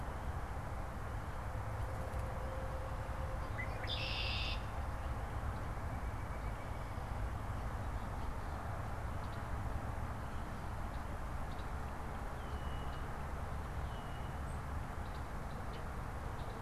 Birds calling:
Red-winged Blackbird (Agelaius phoeniceus), White-breasted Nuthatch (Sitta carolinensis)

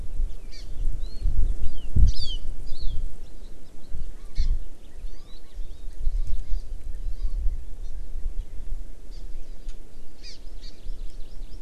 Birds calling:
Hawaii Amakihi (Chlorodrepanis virens)

